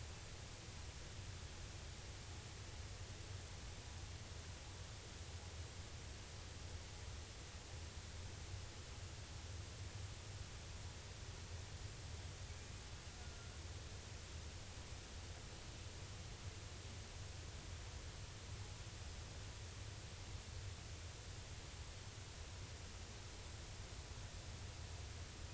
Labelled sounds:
13.2	13.5	killer whale, 1.3 to 1.5 kHz

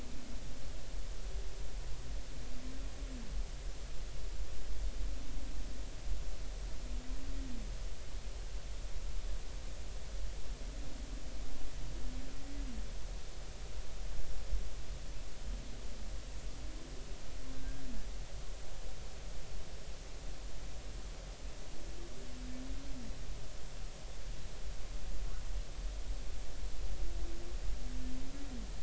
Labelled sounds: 17.5	17.8	humpback whale, 1.5 to 1.7 kHz

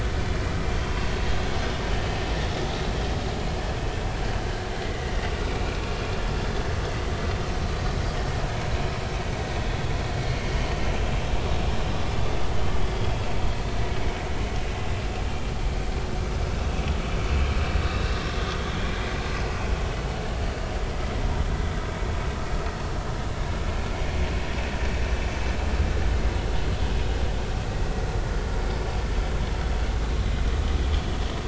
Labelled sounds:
4.8	5.8	vessel noise, 1.9 to 2.5 kHz
17.8	18.1	vessel noise, 3.6 to 4.0 kHz
21.2	21.4	vessel noise, 0.86 to 1.0 kHz

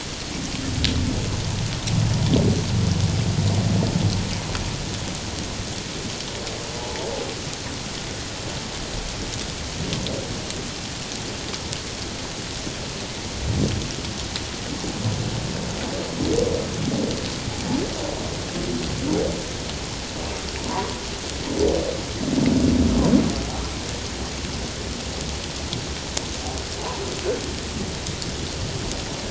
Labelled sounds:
6.8	7.1	humpback whale, 0.81 to 1.0 kHz
20.6	20.9	humpback whale, 0.88 to 1.2 kHz

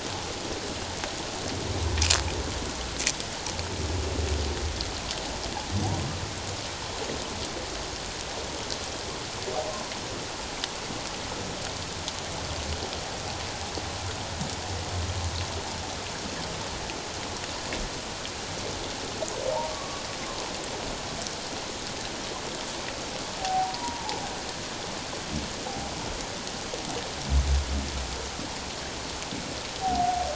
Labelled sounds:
19.7	20.0	humpback whale, 1.0 to 1.2 kHz
23.4	24.2	humpback whale, 0.78 to 1.0 kHz
29.8	30.3	humpback whale, 0.78 to 0.81 kHz

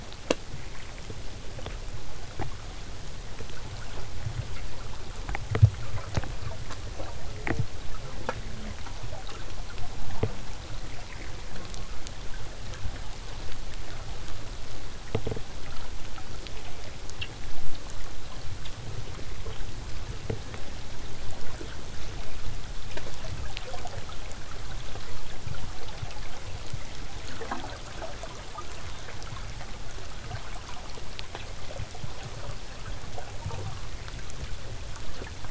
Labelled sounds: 11.5	11.9	killer whale, southern resident, J pod, call S04, 0.08 to 1.6 kHz

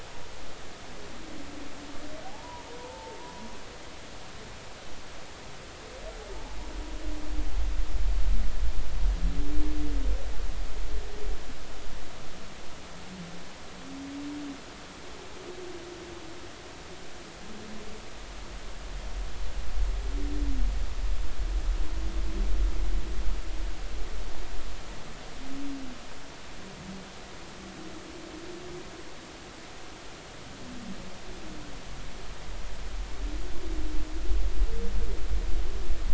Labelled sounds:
2.2	3.4	humpback whale, 0.80 to 1.1 kHz

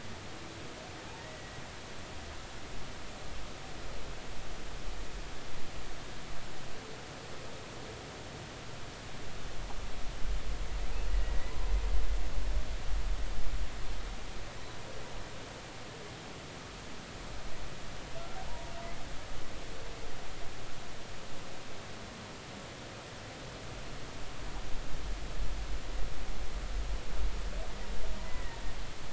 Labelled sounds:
1.2	1.6	humpback whale, 1.8 to 2.0 kHz
11.1	11.4	humpback whale, 1.8 to 2.0 kHz
28.2	28.6	humpback whale, 1.8 to 2.1 kHz

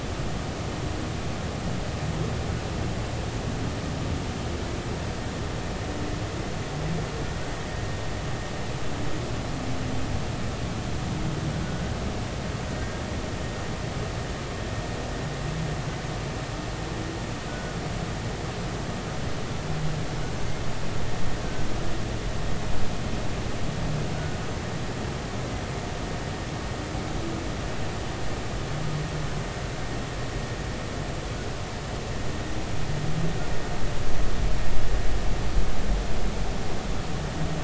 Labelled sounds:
17.5	17.8	humpback whale, 1.4 to 1.5 kHz

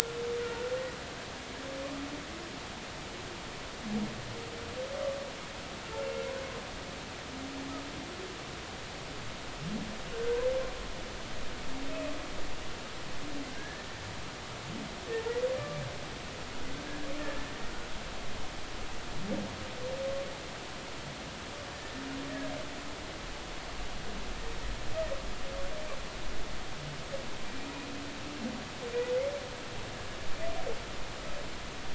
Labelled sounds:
10.1	10.5	humpback whale, 1.5 to 1.7 kHz
13.6	13.9	humpback whale, 1.5 to 1.8 kHz
17.2	17.9	humpback whale, 1.3 to 1.9 kHz
21.7	22.0	humpback whale, 1.7 to 1.8 kHz

